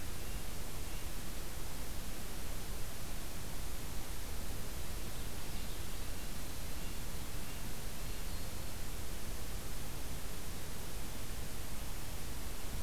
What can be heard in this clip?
Red-breasted Nuthatch